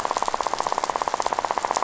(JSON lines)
{"label": "biophony, rattle", "recorder": "SoundTrap 500"}